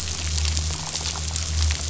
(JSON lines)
{"label": "anthrophony, boat engine", "recorder": "SoundTrap 500"}